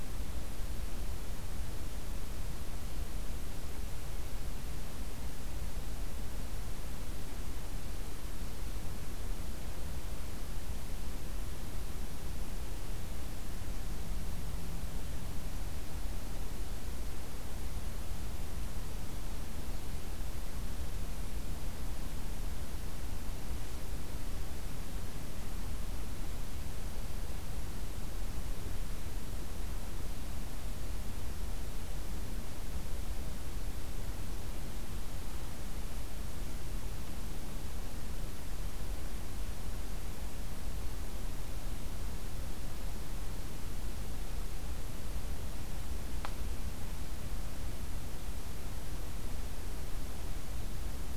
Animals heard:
forest ambience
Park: Acadia National Park